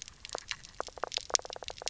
{"label": "biophony, knock croak", "recorder": "SoundTrap 300"}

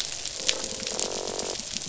{"label": "biophony", "recorder": "SoundTrap 500"}
{"label": "biophony, croak", "recorder": "SoundTrap 500"}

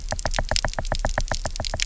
{"label": "biophony, knock", "recorder": "SoundTrap 300"}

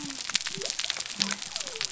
{"label": "biophony", "recorder": "SoundTrap 300"}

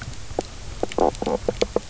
{"label": "biophony, knock croak", "recorder": "SoundTrap 300"}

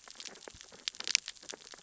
{"label": "biophony, sea urchins (Echinidae)", "recorder": "SoundTrap 600 or HydroMoth"}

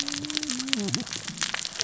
{"label": "biophony, cascading saw", "recorder": "SoundTrap 600 or HydroMoth"}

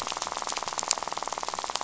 {"label": "biophony, rattle", "recorder": "SoundTrap 500"}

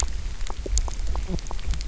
{"label": "biophony, knock croak", "recorder": "SoundTrap 300"}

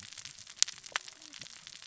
{"label": "biophony, cascading saw", "recorder": "SoundTrap 600 or HydroMoth"}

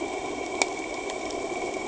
{"label": "anthrophony, boat engine", "recorder": "HydroMoth"}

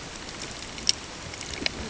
{"label": "ambient", "recorder": "HydroMoth"}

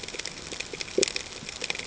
{"label": "ambient", "recorder": "HydroMoth"}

